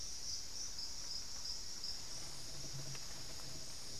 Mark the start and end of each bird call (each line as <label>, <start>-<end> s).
Thrush-like Wren (Campylorhynchus turdinus), 0.2-3.9 s